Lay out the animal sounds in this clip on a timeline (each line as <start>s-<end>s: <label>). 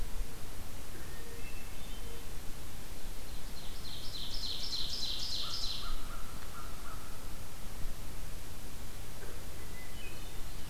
1.1s-2.3s: Hermit Thrush (Catharus guttatus)
3.2s-5.9s: Ovenbird (Seiurus aurocapilla)
5.4s-7.0s: American Crow (Corvus brachyrhynchos)
9.6s-10.6s: Hermit Thrush (Catharus guttatus)